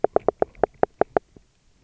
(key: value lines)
label: biophony, knock
recorder: SoundTrap 300